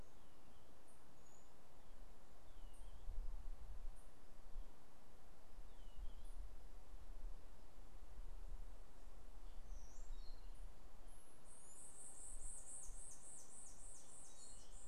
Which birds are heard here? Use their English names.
White-eared Ground-Sparrow